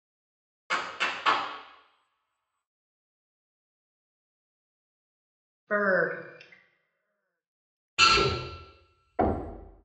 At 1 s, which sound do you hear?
clapping